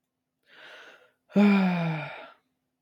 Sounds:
Sigh